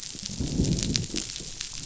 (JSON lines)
{"label": "biophony, growl", "recorder": "SoundTrap 500"}